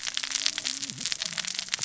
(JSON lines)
{"label": "biophony, cascading saw", "recorder": "SoundTrap 600 or HydroMoth"}